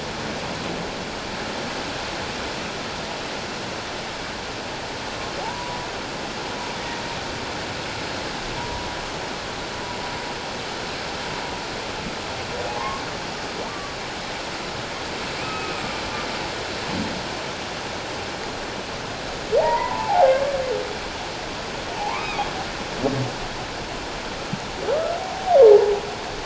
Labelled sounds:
5.4	5.9	humpback whale, 0.78 to 1.0 kHz
8.6	8.9	humpback whale, 0.91 to 1.0 kHz
12.7	13.0	humpback whale, 0.78 to 1.2 kHz
13.6	14.0	humpback whale, 1.1 to 1.2 kHz
15.4	15.8	humpback whale, 1.2 to 2.6 kHz
19.6	20.5	humpback whale, 0.78 to 2.1 kHz
21.9	22.4	humpback whale, 0.78 to 2.6 kHz
25.2	25.9	humpback whale, 0.78 to 1.0 kHz

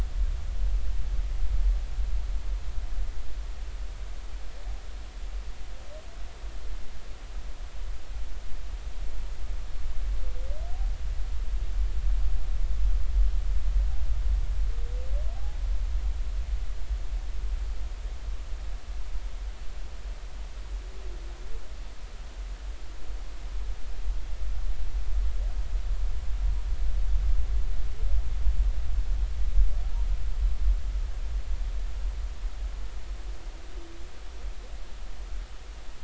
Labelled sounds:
15.3	15.6	humpback whale, 0.80 to 0.86 kHz

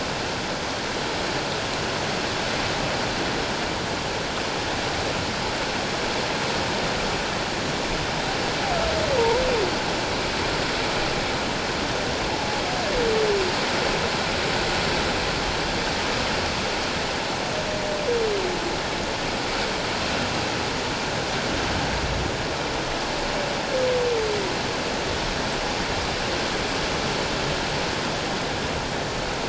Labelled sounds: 9.2	9.4	humpback whale, 0.84 to 1.0 kHz

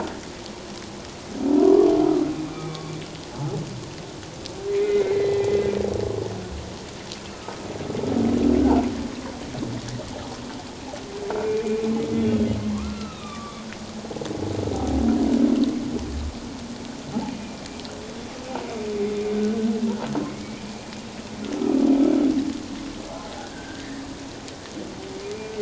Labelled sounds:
2.5	2.8	humpback whale, 2.3 to 2.4 kHz
4.7	5.6	humpback whale, 1.9 to 2.6 kHz
7.3	7.7	humpback whale, 1.2 to 1.4 kHz
11.4	13.6	humpback whale, 0.97 to 3.9 kHz
17.3	17.6	humpback whale, 2.3 to 2.5 kHz
20.3	20.6	humpback whale, 2.1 to 2.3 kHz
23.4	23.9	humpback whale, 1.4 to 1.7 kHz

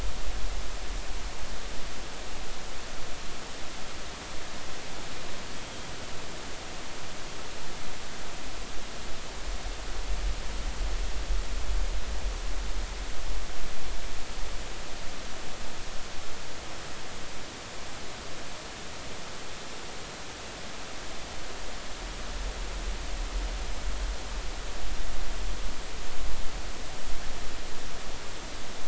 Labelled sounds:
5.6	5.9	Pacific white-sided dolphin, 3.2 to 3.3 kHz

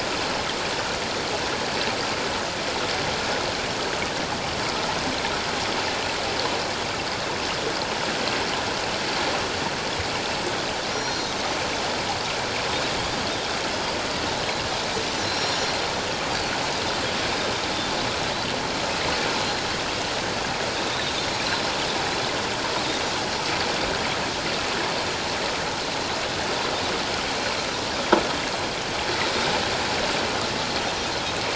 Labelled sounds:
10.9	11.3	Pacific white-sided dolphin, 4.2 to 5.7 kHz
15.2	15.8	Pacific white-sided dolphin, 4.0 to 7.0 kHz
20.9	21.4	Pacific white-sided dolphin, 3.4 to 6.8 kHz

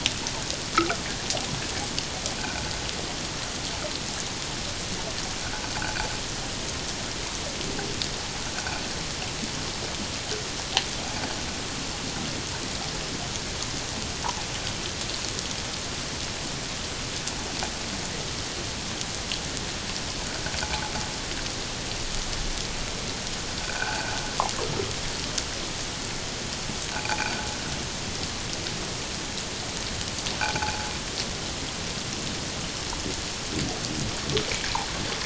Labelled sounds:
0.7	1.0	water noise, 1.2 to 1.5 kHz

